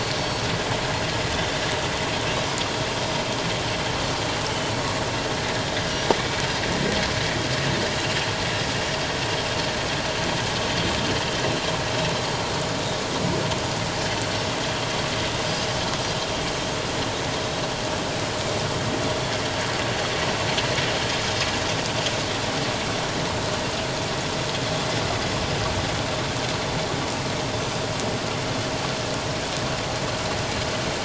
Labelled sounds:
0.1	0.4	Pacific white-sided dolphin, 4.3 to 5.6 kHz

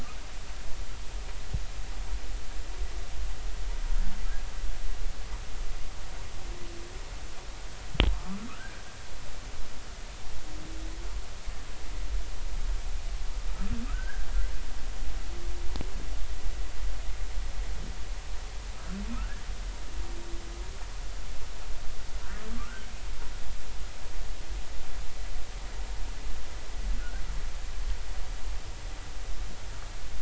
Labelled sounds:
8.1	8.8	humpback whale, 1.0 to 1.7 kHz
13.9	14.3	humpback whale, 1.2 to 1.7 kHz
18.7	19.4	humpback whale, 1.2 to 1.8 kHz
27.0	27.2	humpback whale, 1.3 to 1.6 kHz

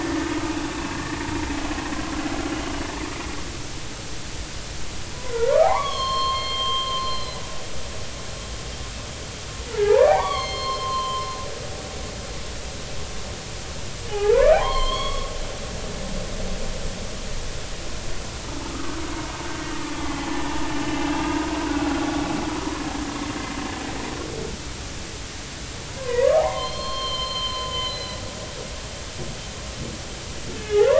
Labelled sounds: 0.7	1.0	humpback whale, 2.6 to 2.7 kHz
2.5	2.7	humpback whale, 2.8 to 2.9 kHz
5.3	7.4	humpback whale, 0.80 to 6.5 kHz
9.6	11.3	humpback whale, 0.80 to 5.3 kHz
14.1	15.6	humpback whale, 0.80 to 4.5 kHz
18.6	19.0	humpback whale, 1.1 to 1.4 kHz
20.0	20.5	humpback whale, 1.7 to 3.2 kHz
21.1	22.1	humpback whale, 1.3 to 2.8 kHz
26.0	28.2	humpback whale, 0.80 to 4.3 kHz
30.6	30.9	humpback whale, 1.2 to 3.0 kHz

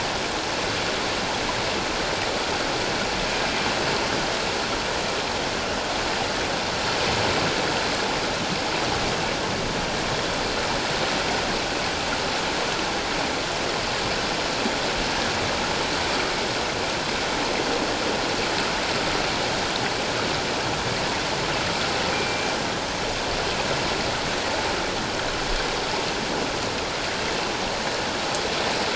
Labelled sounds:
22.1	22.5	killer whale, northern resident, A clan, AA subclan, 2.3 to 2.4 kHz

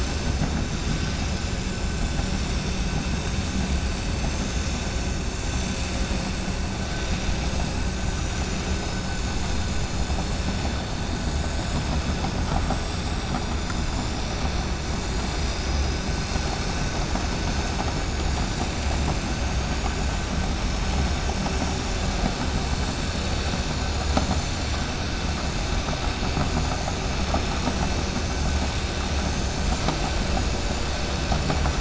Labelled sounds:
13.2	13.6	vessel noise, 6.8 to 7.0 kHz

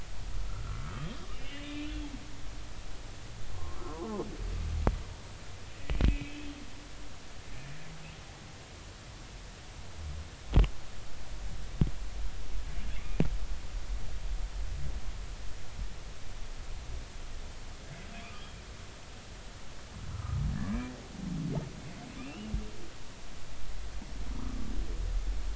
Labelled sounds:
0.9	1.9	humpback whale, 1.9 to 3.4 kHz
3.5	4.2	humpback whale, 0.80 to 1.4 kHz
6.1	6.5	humpback whale, 2.2 to 2.7 kHz
20.1	20.4	humpback whale, 1.2 to 1.4 kHz
22.2	22.5	humpback whale, 2.3 to 3.0 kHz

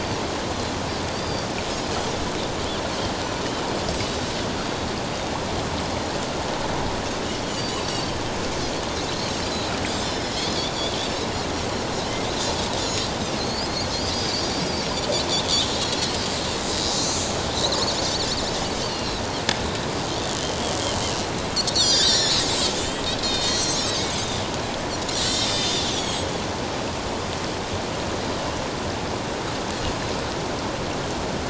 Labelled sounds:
1.1	1.5	Pacific white-sided dolphin, 3.4 to 4.9 kHz
7.8	8.1	Pacific white-sided dolphin, 4.5 to 4.7 kHz
9.9	10.5	Pacific white-sided dolphin, 1.9 to 5.4 kHz
12.8	13.1	Pacific white-sided dolphin, 5.3 to 7.0 kHz
13.4	13.7	Pacific white-sided dolphin, 4.1 to 4.6 kHz
15.7	16.0	Pacific white-sided dolphin, 3.8 to 4.3 kHz
16.7	16.9	Pacific white-sided dolphin, 4.8 to 5.1 kHz
17.5	18.3	Pacific white-sided dolphin, 3.5 to 4.7 kHz
18.8	19.2	Pacific white-sided dolphin, 2.7 to 4.7 kHz
21.7	22.5	Pacific white-sided dolphin, 1.5 to 8.0 kHz
22.8	24.0	Pacific white-sided dolphin, 2.4 to 7.8 kHz
25.1	26.3	Pacific white-sided dolphin, 1.8 to 7.9 kHz

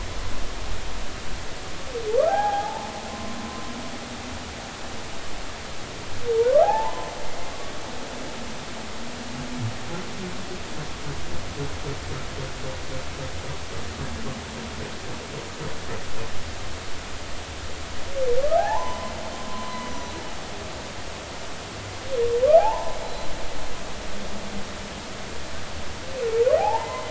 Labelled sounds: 2.3	3.3	humpback whale, 0.80 to 1.7 kHz
6.3	7.1	humpback whale, 0.80 to 1.4 kHz
18.6	20.1	humpback whale, 0.80 to 6.0 kHz
22.6	23.0	humpback whale, 0.80 to 1.1 kHz
24.0	24.3	humpback whale, 4.0 to 4.1 kHz
26.6	27.0	humpback whale, 0.80 to 2.1 kHz

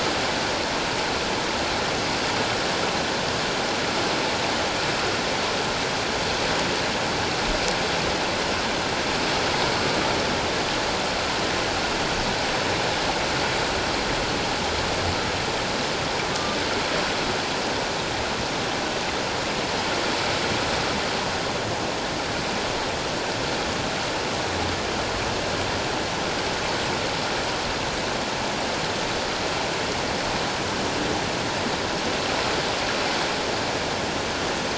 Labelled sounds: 16.3	16.6	killer whale, 1.16 to 1.25 kHz

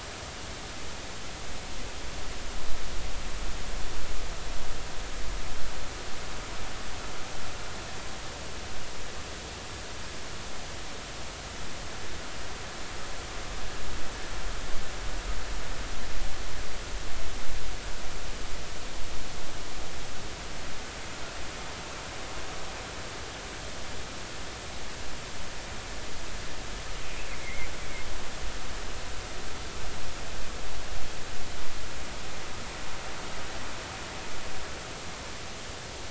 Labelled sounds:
27.0	27.7	killer whale, 1.9 to 2.7 kHz

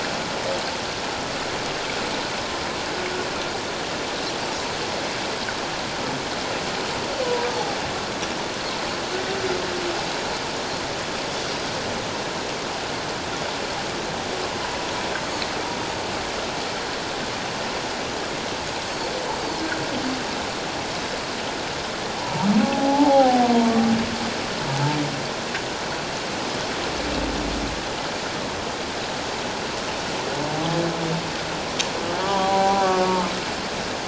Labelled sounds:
18.9	19.2	Pacific white-sided dolphin, 4.2 to 4.6 kHz
22.2	23.5	humpback whale, 0.78 to 1.0 kHz
32.2	33.3	humpback whale, 0.78 to 1.4 kHz

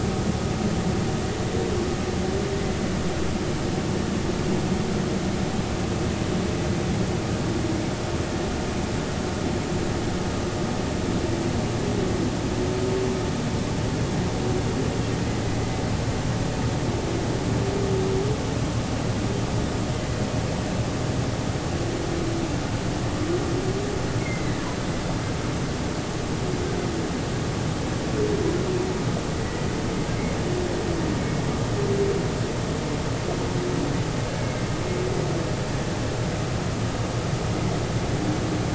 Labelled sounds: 24.2	24.6	humpback whale, 1.9 to 2.2 kHz

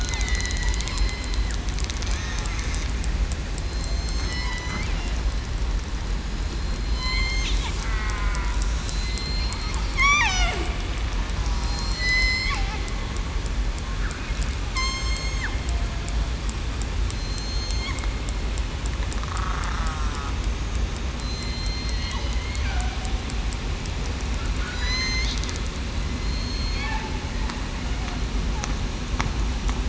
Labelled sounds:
0.1	0.4	killer whale, southern resident, 1.9 to 2.1 kHz
3.7	4.5	killer whale, southern resident, 4.1 to 6.4 kHz
6.5	7.2	killer whale, southern resident, 4.1 to 4.5 kHz
7.8	8.5	killer whale, southern resident, 1.1 to 1.6 kHz
9.2	10.3	killer whale, southern resident, 1.9 to 4.4 kHz
11.4	12.5	killer whale, southern resident, 0.94 to 6.2 kHz
14.7	15.4	killer whale, southern resident, 2.1 to 8.0 kHz
19.8	20.1	killer whale, southern resident, 1.2 to 1.3 kHz
21.2	22.1	killer whale, southern resident, 2.0 to 7.3 kHz
24.7	25.3	killer whale, southern resident, 1.9 to 6.5 kHz
26.2	26.6	killer whale, southern resident, 4.2 to 4.3 kHz
27.8	28.2	killer whale, southern resident, 0.70 to 0.80 kHz

